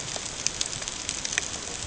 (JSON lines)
{"label": "ambient", "recorder": "HydroMoth"}